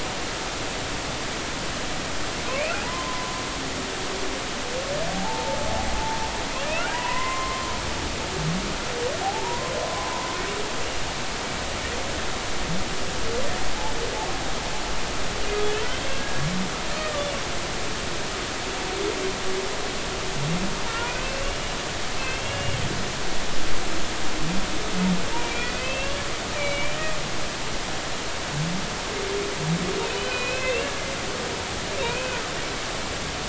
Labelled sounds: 2.8	3.4	humpback whale, 0.86 to 1.1 kHz
5.1	5.6	humpback whale, 0.80 to 0.93 kHz
6.7	7.7	humpback whale, 0.93 to 3.0 kHz
9.2	10.1	humpback whale, 0.80 to 1.1 kHz
16.1	16.5	humpback whale, 1.6 to 1.7 kHz
21.0	22.8	humpback whale, 2.3 to 2.9 kHz
25.4	26.2	humpback whale, 2.3 to 2.8 kHz
26.5	27.0	humpback whale, 2.1 to 3.1 kHz
30.1	30.9	humpback whale, 2.4 to 4.2 kHz
32.0	32.4	humpback whale, 2.3 to 2.6 kHz

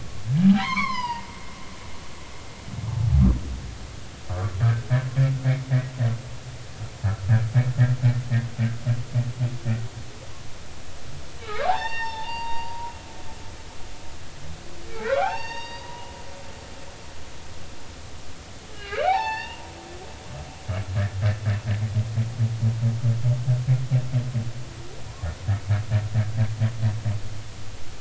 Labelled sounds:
0.6	1.3	humpback whale, 0.86 to 5.7 kHz
4.6	4.9	humpback whale, 1.5 to 1.7 kHz
11.4	12.9	humpback whale, 0.80 to 5.6 kHz
14.9	16.1	humpback whale, 0.80 to 6.5 kHz
18.7	19.7	humpback whale, 0.80 to 5.7 kHz

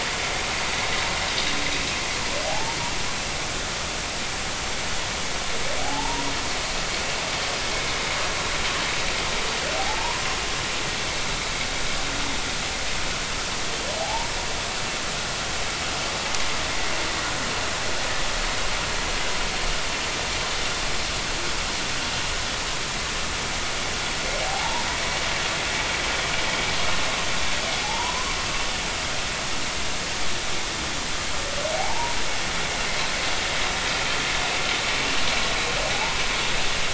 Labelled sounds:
2.5	2.8	humpback whale, 0.80 to 0.96 kHz
5.8	6.3	humpback whale, 0.80 to 1.1 kHz
9.8	10.2	humpback whale, 0.80 to 1.1 kHz
14.0	14.3	humpback whale, 0.80 to 0.99 kHz
24.4	24.9	humpback whale, 0.80 to 1.0 kHz
27.8	28.3	humpback whale, 0.80 to 1.1 kHz
31.8	32.2	humpback whale, 0.80 to 0.99 kHz
35.9	36.2	humpback whale, 0.80 to 1.1 kHz

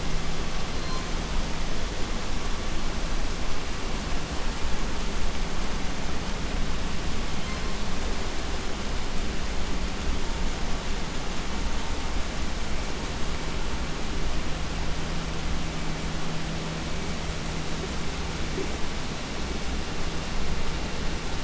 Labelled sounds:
0.4	1.8	killer whale, southern resident, 0.71 to 4.7 kHz
7.2	8.1	killer whale, southern resident, 0.67 to 6.2 kHz

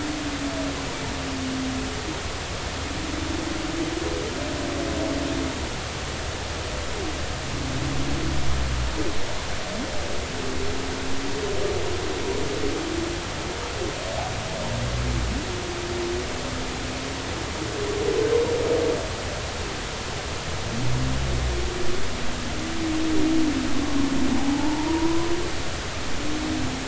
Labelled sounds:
24.4	25.3	humpback whale, 0.80 to 1.1 kHz

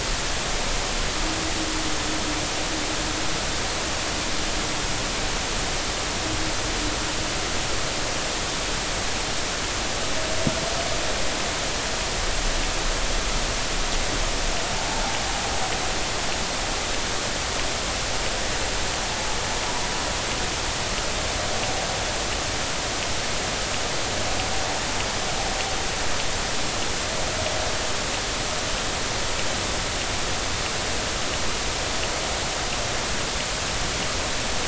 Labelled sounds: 14.8	15.1	vessel noise, 0.80 to 0.93 kHz

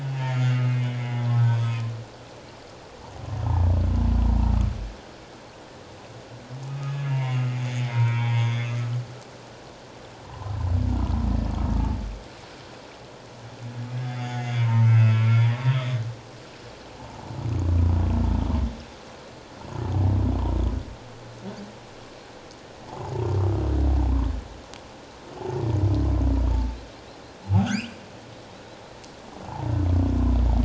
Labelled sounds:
0.3	1.3	humpback whale, 1.9 to 7.0 kHz
1.5	1.8	humpback whale, 1.0 to 1.3 kHz
6.7	8.8	humpback whale, 0.78 to 3.6 kHz
10.2	10.5	humpback whale, 0.78 to 1.1 kHz
14.0	15.6	humpback whale, 0.88 to 3.6 kHz
17.0	17.3	humpback whale, 0.78 to 1.0 kHz
27.6	27.9	humpback whale, 5.7 to 7.6 kHz
29.5	29.8	humpback whale, 0.78 to 1.0 kHz

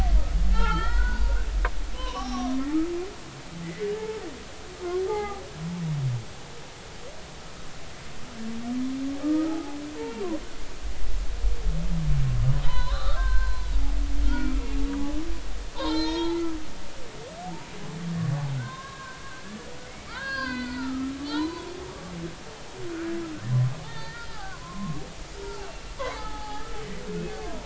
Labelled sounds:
0.5	1.4	humpback whale, 0.80 to 4.3 kHz
1.9	2.6	humpback whale, 0.80 to 6.0 kHz
3.6	4.2	humpback whale, 0.83 to 2.1 kHz
5.0	5.4	humpback whale, 0.80 to 2.2 kHz
9.2	10.2	humpback whale, 0.80 to 2.4 kHz
12.6	13.7	humpback whale, 0.86 to 4.2 kHz
14.2	14.5	humpback whale, 1.3 to 4.4 kHz
15.8	16.4	humpback whale, 0.80 to 6.6 kHz
18.6	19.2	humpback whale, 0.96 to 3.9 kHz
20.1	22.1	humpback whale, 0.80 to 4.9 kHz
23.8	25.7	humpback whale, 0.80 to 3.7 kHz
26.0	27.6	humpback whale, 0.80 to 4.7 kHz

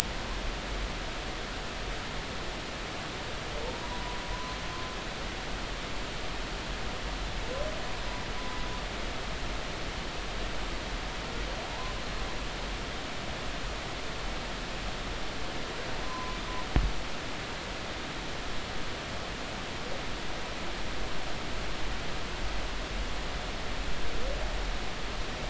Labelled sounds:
3.8	4.2	humpback whale, 0.93 to 1.0 kHz
16.0	16.4	humpback whale, 0.93 to 1.1 kHz

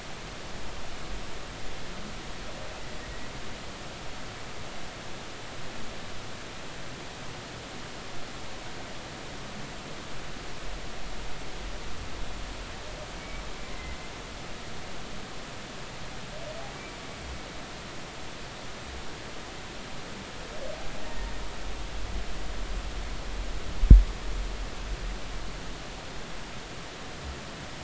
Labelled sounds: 13.2	14.0	humpback whale, 2.0 to 2.3 kHz
21.0	21.3	humpback whale, 1.8 to 1.9 kHz

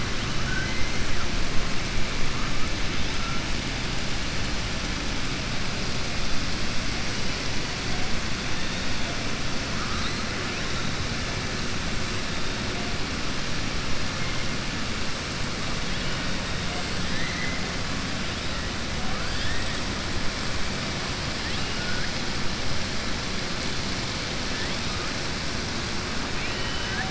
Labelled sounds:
0.4	0.8	killer whale, southern resident, 0.88 to 2.1 kHz
17.0	17.6	killer whale, southern resident, 1.7 to 2.2 kHz
26.3	27.0	killer whale, southern resident, 0.75 to 3.1 kHz

